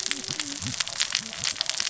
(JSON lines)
{"label": "biophony, cascading saw", "recorder": "SoundTrap 600 or HydroMoth"}